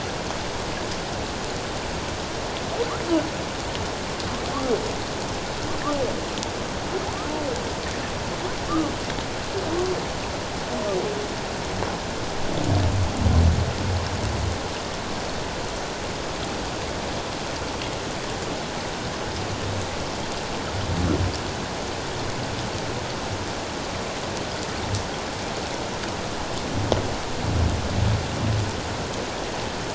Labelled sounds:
8.7	8.9	humpback whale, 1.1 to 1.4 kHz

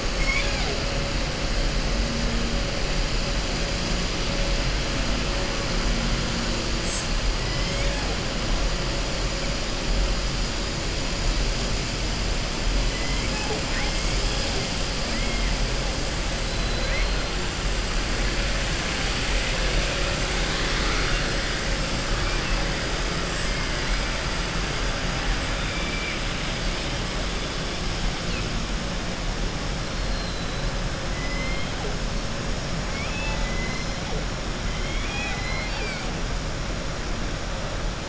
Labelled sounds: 0.1	0.8	killer whale, southern resident, 0.42 to 5.5 kHz
25.6	26.2	killer whale, southern resident, 2.0 to 3.1 kHz
30.0	30.6	killer whale, southern resident, 3.9 to 4.4 kHz
31.1	31.7	killer whale, southern resident, 2.0 to 6.0 kHz
32.8	33.9	killer whale, southern resident, 0.88 to 4.4 kHz
34.7	36.1	killer whale, southern resident, 0.81 to 5.1 kHz

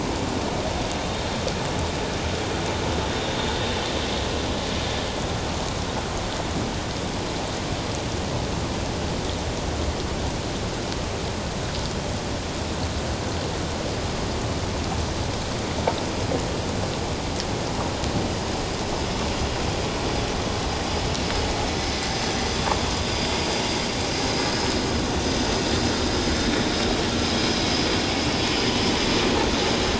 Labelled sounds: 21.8	22.1	vessel noise, 2.0 to 2.3 kHz

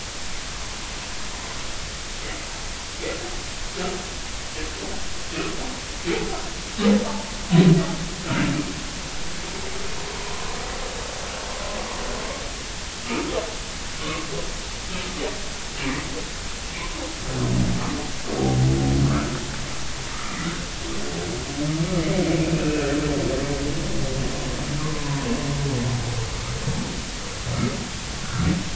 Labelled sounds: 14.0	14.3	humpback whale, 1.0 to 1.3 kHz
19.0	19.4	humpback whale, 1.1 to 1.5 kHz
20.1	20.7	humpback whale, 1.1 to 1.6 kHz
22.5	22.9	humpback whale, 2.4 to 2.6 kHz
24.8	25.3	humpback whale, 0.90 to 1.2 kHz

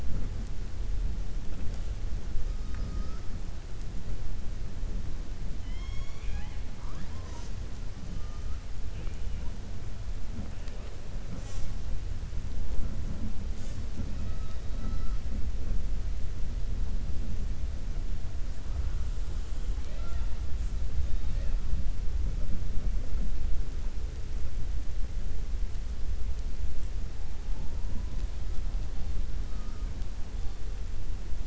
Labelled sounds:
5.5	6.6	killer whale, 0.84 to 6.8 kHz
19.7	20.4	killer whale, 0.58 to 4.8 kHz

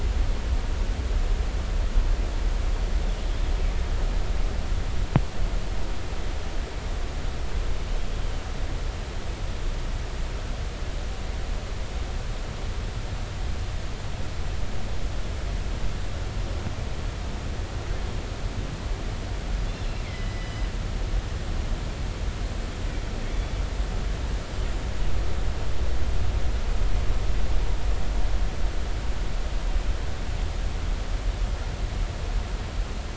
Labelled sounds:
19.7	20.5	killer whale, northern resident, G clan, 1.9 to 5.1 kHz
23.3	23.6	killer whale, northern resident, G clan, 3.4 to 3.6 kHz
24.6	24.8	killer whale, northern resident, G clan, 7.1 to 7.4 kHz

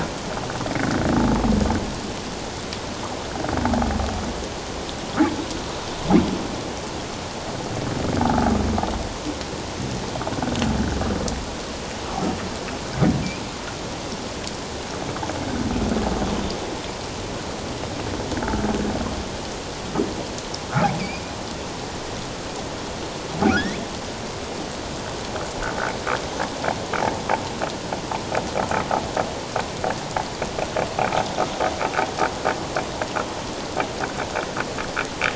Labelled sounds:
23.5	23.8	humpback whale, 1.2 to 2.4 kHz

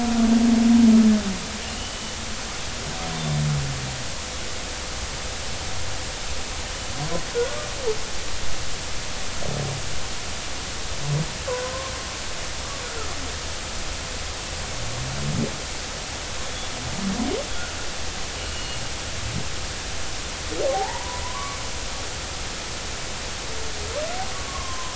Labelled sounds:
18.5	18.8	humpback whale, 4.3 to 4.4 kHz
20.7	21.6	humpback whale, 0.80 to 2.3 kHz
24.3	24.9	humpback whale, 0.96 to 1.2 kHz

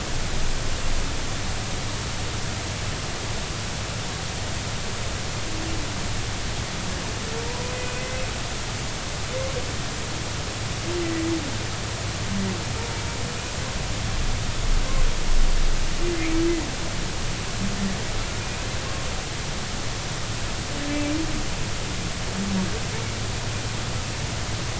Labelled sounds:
7.5	8.1	humpback whale, 0.90 to 2.6 kHz

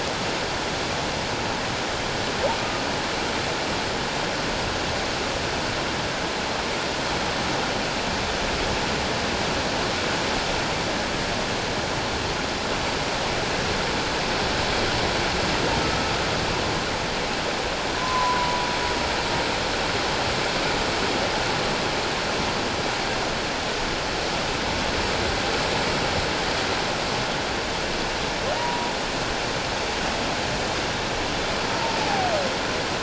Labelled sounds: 15.8	16.1	humpback whale, 1.28 to 1.34 kHz
18.0	18.6	humpback whale, 0.94 to 1.1 kHz
28.6	28.9	humpback whale, 0.88 to 1.0 kHz

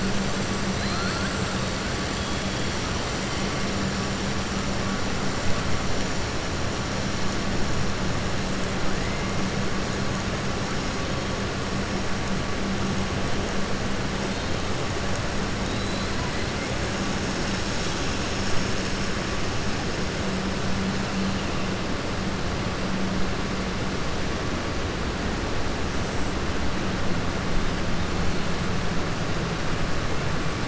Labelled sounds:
0.7	1.3	killer whale, southern resident, 0.71 to 4.9 kHz
15.6	16.1	killer whale, southern resident, 3.4 to 4.3 kHz

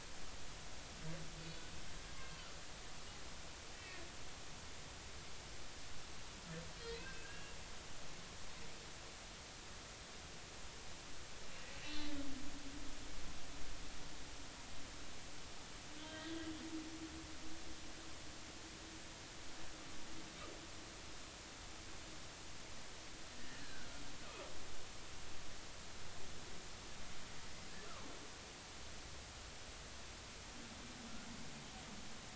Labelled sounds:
2.1	2.4	humpback whale, 1.0 to 1.1 kHz
3.7	4.0	humpback whale, 1.8 to 2.0 kHz
6.8	7.6	humpback whale, 1.5 to 4.3 kHz
11.7	12.0	humpback whale, 2.6 to 3.0 kHz
16.0	16.4	humpback whale, 1.5 to 3.2 kHz
23.4	23.9	humpback whale, 1.4 to 2.0 kHz

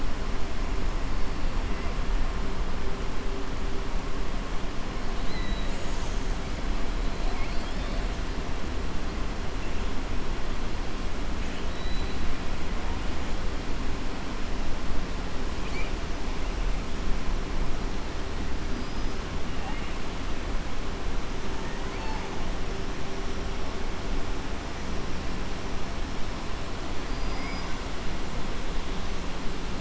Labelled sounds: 5.1	5.8	killer whale, southern resident, 1.9 to 4.3 kHz
7.2	8.0	killer whale, southern resident, 2.1 to 5.3 kHz
11.4	12.2	killer whale, southern resident, 2.2 to 4.2 kHz
21.6	22.2	killer whale, southern resident, 0.85 to 5.3 kHz
27.0	27.7	killer whale, southern resident, 4.6 to 5.7 kHz

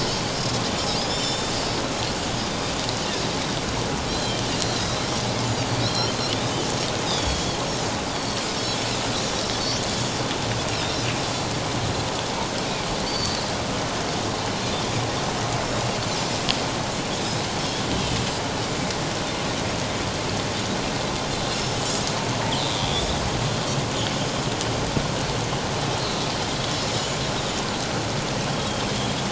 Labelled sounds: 1.1	1.5	Pacific white-sided dolphin, 3.3 to 7.3 kHz
4.1	5.1	Pacific white-sided dolphin, 3.1 to 4.2 kHz
5.8	6.1	Pacific white-sided dolphin, 3.8 to 4.3 kHz
7.1	8.8	Pacific white-sided dolphin, 3.2 to 5.5 kHz
13.0	13.4	Pacific white-sided dolphin, 4.4 to 4.7 kHz
28.5	28.9	Pacific white-sided dolphin, 3.1 to 3.4 kHz

